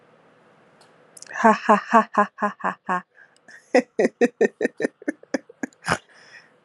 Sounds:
Laughter